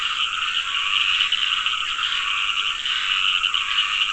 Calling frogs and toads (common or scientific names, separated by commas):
Dendropsophus nahdereri, Scinax perereca